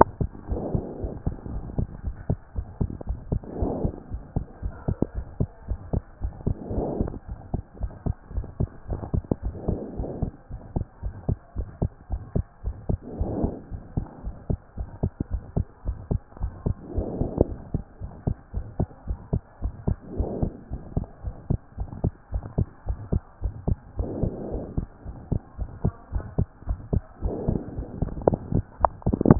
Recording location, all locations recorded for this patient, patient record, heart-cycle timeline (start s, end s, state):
pulmonary valve (PV)
aortic valve (AV)+pulmonary valve (PV)+tricuspid valve (TV)+mitral valve (MV)
#Age: Child
#Sex: Male
#Height: 136.0 cm
#Weight: 31.3 kg
#Pregnancy status: False
#Murmur: Present
#Murmur locations: aortic valve (AV)+pulmonary valve (PV)
#Most audible location: pulmonary valve (PV)
#Systolic murmur timing: Early-systolic
#Systolic murmur shape: Plateau
#Systolic murmur grading: I/VI
#Systolic murmur pitch: Low
#Systolic murmur quality: Harsh
#Diastolic murmur timing: nan
#Diastolic murmur shape: nan
#Diastolic murmur grading: nan
#Diastolic murmur pitch: nan
#Diastolic murmur quality: nan
#Outcome: Normal
#Campaign: 2014 screening campaign
0.00	1.02	unannotated
1.02	1.12	S1
1.12	1.26	systole
1.26	1.34	S2
1.34	1.52	diastole
1.52	1.64	S1
1.64	1.76	systole
1.76	1.86	S2
1.86	2.04	diastole
2.04	2.14	S1
2.14	2.28	systole
2.28	2.38	S2
2.38	2.56	diastole
2.56	2.66	S1
2.66	2.80	systole
2.80	2.90	S2
2.90	3.08	diastole
3.08	3.18	S1
3.18	3.30	systole
3.30	3.40	S2
3.40	3.60	diastole
3.60	3.72	S1
3.72	3.82	systole
3.82	3.94	S2
3.94	4.12	diastole
4.12	4.22	S1
4.22	4.36	systole
4.36	4.44	S2
4.44	4.62	diastole
4.62	4.74	S1
4.74	4.86	systole
4.86	4.96	S2
4.96	5.16	diastole
5.16	5.26	S1
5.26	5.38	systole
5.38	5.48	S2
5.48	5.68	diastole
5.68	5.80	S1
5.80	5.92	systole
5.92	6.02	S2
6.02	6.22	diastole
6.22	6.32	S1
6.32	6.46	systole
6.46	6.54	S2
6.54	6.72	diastole
6.72	6.86	S1
6.86	6.98	systole
6.98	7.12	S2
7.12	7.30	diastole
7.30	7.38	S1
7.38	7.52	systole
7.52	7.62	S2
7.62	7.80	diastole
7.80	7.92	S1
7.92	8.04	systole
8.04	8.14	S2
8.14	8.34	diastole
8.34	8.46	S1
8.46	8.58	systole
8.58	8.68	S2
8.68	8.90	diastole
8.90	9.00	S1
9.00	9.12	systole
9.12	9.24	S2
9.24	9.44	diastole
9.44	9.54	S1
9.54	9.66	systole
9.66	9.78	S2
9.78	9.98	diastole
9.98	10.08	S1
10.08	10.20	systole
10.20	10.32	S2
10.32	10.52	diastole
10.52	10.60	S1
10.60	10.74	systole
10.74	10.86	S2
10.86	11.04	diastole
11.04	11.14	S1
11.14	11.28	systole
11.28	11.38	S2
11.38	11.58	diastole
11.58	11.68	S1
11.68	11.80	systole
11.80	11.90	S2
11.90	12.10	diastole
12.10	12.22	S1
12.22	12.34	systole
12.34	12.44	S2
12.44	12.64	diastole
12.64	12.76	S1
12.76	12.88	systole
12.88	12.98	S2
12.98	13.18	diastole
13.18	13.32	S1
13.32	13.42	systole
13.42	13.54	S2
13.54	13.72	diastole
13.72	13.82	S1
13.82	13.96	systole
13.96	14.06	S2
14.06	14.24	diastole
14.24	14.34	S1
14.34	14.48	systole
14.48	14.58	S2
14.58	14.78	diastole
14.78	14.88	S1
14.88	15.02	systole
15.02	15.12	S2
15.12	15.32	diastole
15.32	15.42	S1
15.42	15.56	systole
15.56	15.66	S2
15.66	15.86	diastole
15.86	15.98	S1
15.98	16.10	systole
16.10	16.20	S2
16.20	16.42	diastole
16.42	16.52	S1
16.52	16.64	systole
16.64	16.76	S2
16.76	16.96	diastole
16.96	17.08	S1
17.08	17.18	systole
17.18	17.28	S2
17.28	17.38	diastole
17.38	17.52	S1
17.52	17.72	systole
17.72	17.82	S2
17.82	18.02	diastole
18.02	18.12	S1
18.12	18.26	systole
18.26	18.34	S2
18.34	18.54	diastole
18.54	18.66	S1
18.66	18.78	systole
18.78	18.86	S2
18.86	19.08	diastole
19.08	19.18	S1
19.18	19.32	systole
19.32	19.42	S2
19.42	19.62	diastole
19.62	19.74	S1
19.74	19.86	systole
19.86	19.96	S2
19.96	20.16	diastole
20.16	20.30	S1
20.30	20.40	systole
20.40	20.52	S2
20.52	20.72	diastole
20.72	20.82	S1
20.82	20.96	systole
20.96	21.06	S2
21.06	21.24	diastole
21.24	21.34	S1
21.34	21.48	systole
21.48	21.60	S2
21.60	21.78	diastole
21.78	21.88	S1
21.88	22.02	systole
22.02	22.12	S2
22.12	22.32	diastole
22.32	22.44	S1
22.44	22.56	systole
22.56	22.68	S2
22.68	22.88	diastole
22.88	22.98	S1
22.98	23.12	systole
23.12	23.20	S2
23.20	23.42	diastole
23.42	23.54	S1
23.54	23.66	systole
23.66	23.78	S2
23.78	23.98	diastole
23.98	24.10	S1
24.10	24.20	systole
24.20	24.32	S2
24.32	24.52	diastole
24.52	24.64	S1
24.64	24.76	systole
24.76	24.86	S2
24.86	25.08	diastole
25.08	25.16	S1
25.16	25.30	systole
25.30	25.40	S2
25.40	25.60	diastole
25.60	25.70	S1
25.70	25.84	systole
25.84	25.94	S2
25.94	26.14	diastole
26.14	26.24	S1
26.24	26.38	systole
26.38	26.46	S2
26.46	26.68	diastole
26.68	26.80	S1
26.80	26.92	systole
26.92	27.04	S2
27.04	27.24	diastole
27.24	29.39	unannotated